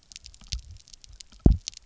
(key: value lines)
label: biophony, double pulse
recorder: SoundTrap 300